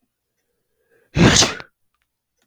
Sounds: Sneeze